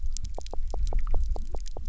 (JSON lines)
{"label": "biophony, knock", "recorder": "SoundTrap 300"}